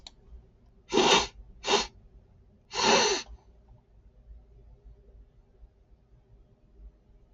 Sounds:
Sniff